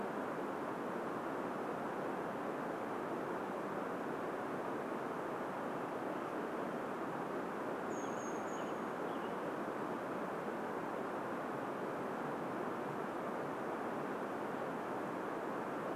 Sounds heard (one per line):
Brown Creeper call
Western Tanager song